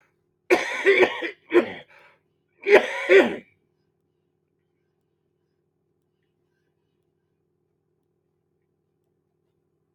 {"expert_labels": [{"quality": "ok", "cough_type": "wet", "dyspnea": false, "wheezing": false, "stridor": false, "choking": false, "congestion": false, "nothing": true, "diagnosis": "lower respiratory tract infection", "severity": "mild"}], "age": 63, "gender": "male", "respiratory_condition": false, "fever_muscle_pain": true, "status": "symptomatic"}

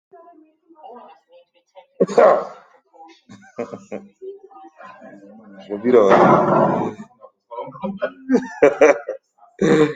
{"expert_labels": [{"quality": "ok", "cough_type": "unknown", "dyspnea": false, "wheezing": false, "stridor": false, "choking": false, "congestion": false, "nothing": true, "diagnosis": "healthy cough", "severity": "pseudocough/healthy cough"}], "age": 40, "gender": "male", "respiratory_condition": false, "fever_muscle_pain": false, "status": "healthy"}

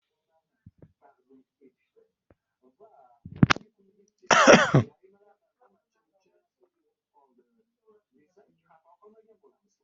{"expert_labels": [{"quality": "ok", "cough_type": "dry", "dyspnea": false, "wheezing": false, "stridor": false, "choking": false, "congestion": false, "nothing": true, "diagnosis": "healthy cough", "severity": "pseudocough/healthy cough"}], "age": 21, "gender": "male", "respiratory_condition": false, "fever_muscle_pain": false, "status": "COVID-19"}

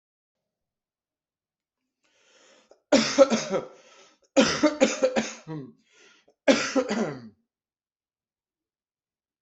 {"expert_labels": [{"quality": "good", "cough_type": "dry", "dyspnea": false, "wheezing": false, "stridor": false, "choking": false, "congestion": false, "nothing": true, "diagnosis": "upper respiratory tract infection", "severity": "mild"}], "age": 45, "gender": "male", "respiratory_condition": false, "fever_muscle_pain": true, "status": "healthy"}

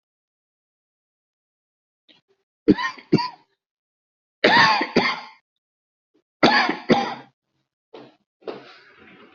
{"expert_labels": [{"quality": "good", "cough_type": "wet", "dyspnea": false, "wheezing": false, "stridor": false, "choking": false, "congestion": false, "nothing": true, "diagnosis": "lower respiratory tract infection", "severity": "mild"}], "age": 40, "gender": "male", "respiratory_condition": false, "fever_muscle_pain": false, "status": "symptomatic"}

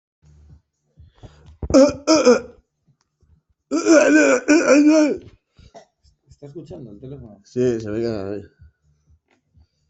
{"expert_labels": [{"quality": "no cough present", "dyspnea": false, "wheezing": false, "stridor": false, "choking": false, "congestion": false, "nothing": false}], "age": 34, "gender": "male", "respiratory_condition": true, "fever_muscle_pain": true, "status": "symptomatic"}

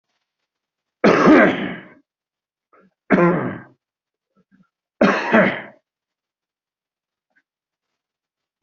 {"expert_labels": [{"quality": "good", "cough_type": "dry", "dyspnea": false, "wheezing": false, "stridor": false, "choking": false, "congestion": false, "nothing": true, "diagnosis": "lower respiratory tract infection", "severity": "mild"}], "age": 63, "gender": "female", "respiratory_condition": true, "fever_muscle_pain": false, "status": "symptomatic"}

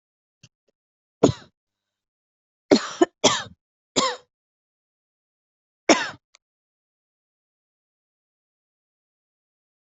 {"expert_labels": [{"quality": "ok", "cough_type": "dry", "dyspnea": false, "wheezing": false, "stridor": false, "choking": false, "congestion": false, "nothing": true, "diagnosis": "lower respiratory tract infection", "severity": "mild"}], "age": 47, "gender": "female", "respiratory_condition": true, "fever_muscle_pain": false, "status": "COVID-19"}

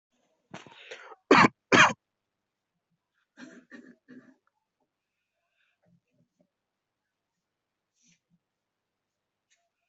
{"expert_labels": [{"quality": "good", "cough_type": "unknown", "dyspnea": false, "wheezing": false, "stridor": false, "choking": false, "congestion": false, "nothing": true, "diagnosis": "healthy cough", "severity": "pseudocough/healthy cough"}], "age": 24, "gender": "male", "respiratory_condition": true, "fever_muscle_pain": false, "status": "symptomatic"}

